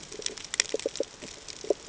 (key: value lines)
label: ambient
recorder: HydroMoth